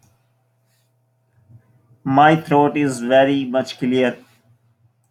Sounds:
Throat clearing